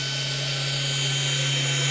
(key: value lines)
label: anthrophony, boat engine
recorder: SoundTrap 500